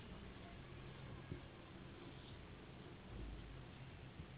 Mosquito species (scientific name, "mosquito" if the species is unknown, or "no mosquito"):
Anopheles gambiae s.s.